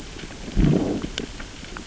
{"label": "biophony, growl", "recorder": "SoundTrap 600 or HydroMoth"}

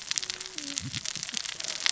{"label": "biophony, cascading saw", "recorder": "SoundTrap 600 or HydroMoth"}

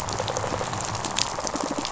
{"label": "biophony, rattle response", "recorder": "SoundTrap 500"}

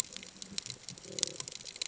{"label": "ambient", "recorder": "HydroMoth"}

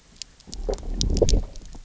{"label": "biophony, low growl", "recorder": "SoundTrap 300"}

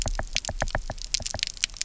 {"label": "biophony, knock", "recorder": "SoundTrap 300"}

